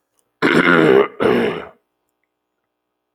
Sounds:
Throat clearing